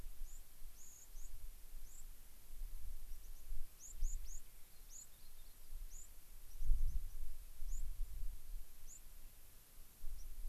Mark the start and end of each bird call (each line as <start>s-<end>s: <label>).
0.2s-0.4s: White-crowned Sparrow (Zonotrichia leucophrys)
0.7s-1.3s: White-crowned Sparrow (Zonotrichia leucophrys)
1.8s-2.0s: White-crowned Sparrow (Zonotrichia leucophrys)
3.0s-3.4s: White-crowned Sparrow (Zonotrichia leucophrys)
3.7s-4.4s: White-crowned Sparrow (Zonotrichia leucophrys)
4.6s-5.7s: Rock Wren (Salpinctes obsoletus)
4.9s-5.1s: White-crowned Sparrow (Zonotrichia leucophrys)
5.8s-6.1s: White-crowned Sparrow (Zonotrichia leucophrys)
6.4s-7.1s: White-crowned Sparrow (Zonotrichia leucophrys)
7.6s-7.8s: White-crowned Sparrow (Zonotrichia leucophrys)
8.7s-9.9s: Rock Wren (Salpinctes obsoletus)
8.8s-9.0s: White-crowned Sparrow (Zonotrichia leucophrys)
10.1s-10.2s: White-crowned Sparrow (Zonotrichia leucophrys)